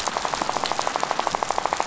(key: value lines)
label: biophony, rattle
recorder: SoundTrap 500